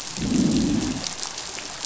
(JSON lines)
{"label": "biophony, growl", "recorder": "SoundTrap 500"}